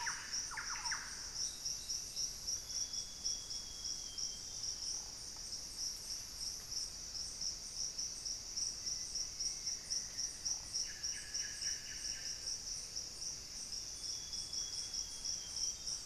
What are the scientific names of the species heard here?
Cacicus solitarius, Campylorhynchus turdinus, Cyanoloxia rothschildii, Formicarius analis